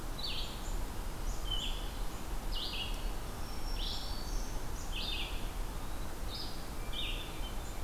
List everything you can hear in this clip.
Red-eyed Vireo, Black-throated Green Warbler, Hermit Thrush